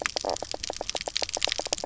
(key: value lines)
label: biophony, knock croak
recorder: SoundTrap 300